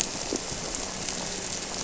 {"label": "anthrophony, boat engine", "recorder": "SoundTrap 300"}
{"label": "biophony", "recorder": "SoundTrap 300"}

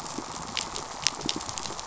{"label": "biophony, pulse", "recorder": "SoundTrap 500"}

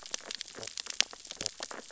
{"label": "biophony, sea urchins (Echinidae)", "recorder": "SoundTrap 600 or HydroMoth"}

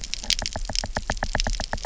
{"label": "biophony, knock", "recorder": "SoundTrap 300"}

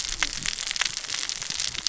{"label": "biophony, cascading saw", "recorder": "SoundTrap 600 or HydroMoth"}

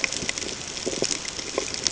{"label": "ambient", "recorder": "HydroMoth"}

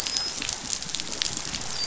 {"label": "biophony, dolphin", "recorder": "SoundTrap 500"}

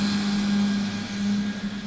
{"label": "anthrophony, boat engine", "recorder": "SoundTrap 500"}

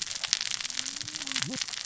{"label": "biophony, cascading saw", "recorder": "SoundTrap 600 or HydroMoth"}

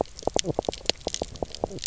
{"label": "biophony, knock croak", "recorder": "SoundTrap 300"}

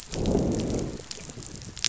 {"label": "biophony, growl", "recorder": "SoundTrap 500"}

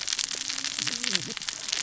{"label": "biophony, cascading saw", "recorder": "SoundTrap 600 or HydroMoth"}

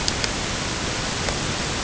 {"label": "ambient", "recorder": "HydroMoth"}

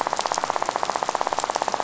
{"label": "biophony, rattle", "recorder": "SoundTrap 500"}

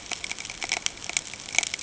{"label": "ambient", "recorder": "HydroMoth"}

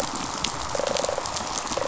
{"label": "biophony, rattle response", "recorder": "SoundTrap 500"}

